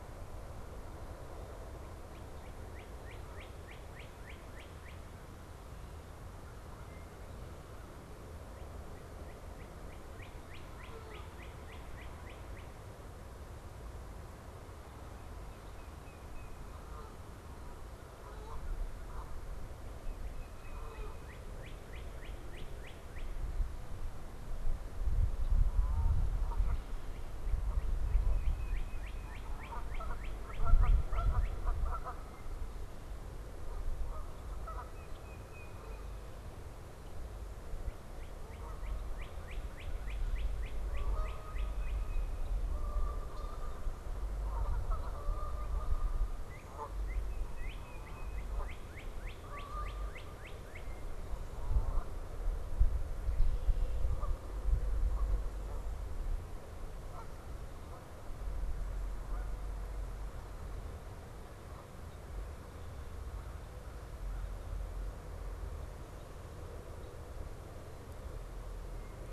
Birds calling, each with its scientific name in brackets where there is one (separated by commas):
Northern Cardinal (Cardinalis cardinalis), Tufted Titmouse (Baeolophus bicolor), Canada Goose (Branta canadensis)